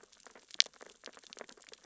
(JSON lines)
{"label": "biophony, sea urchins (Echinidae)", "recorder": "SoundTrap 600 or HydroMoth"}